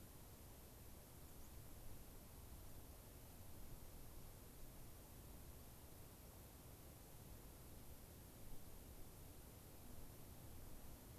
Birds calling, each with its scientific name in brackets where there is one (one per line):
White-crowned Sparrow (Zonotrichia leucophrys)